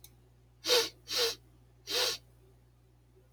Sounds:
Sniff